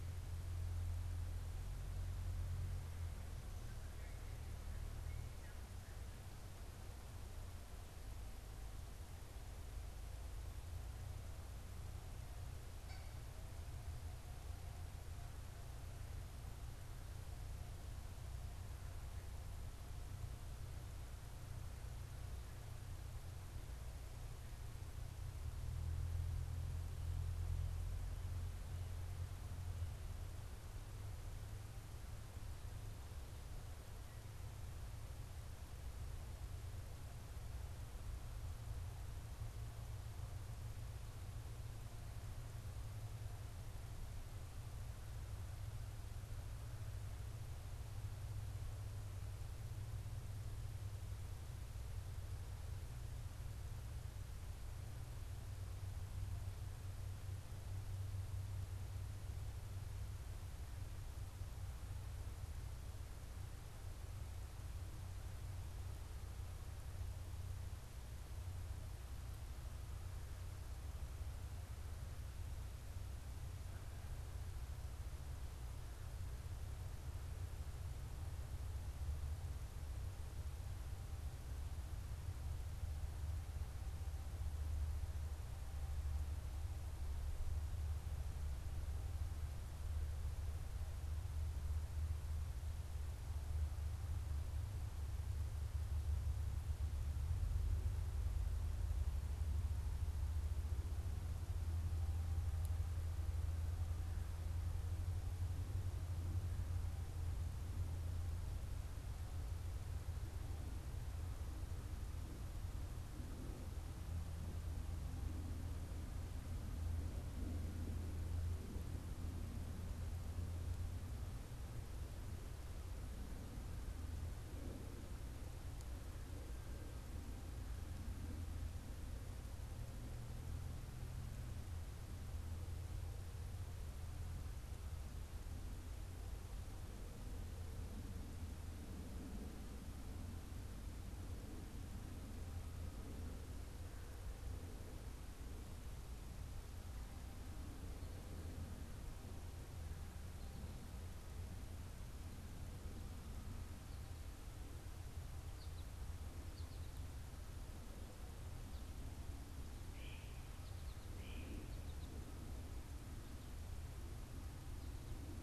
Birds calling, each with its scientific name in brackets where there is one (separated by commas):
American Goldfinch (Spinus tristis), Great Crested Flycatcher (Myiarchus crinitus), Cooper's Hawk (Accipiter cooperii)